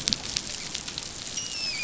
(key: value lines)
label: biophony, dolphin
recorder: SoundTrap 500